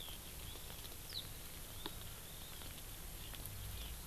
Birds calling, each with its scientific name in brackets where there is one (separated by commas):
Hawaii Amakihi (Chlorodrepanis virens), Eurasian Skylark (Alauda arvensis)